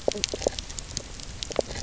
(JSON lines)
{"label": "biophony, knock croak", "recorder": "SoundTrap 300"}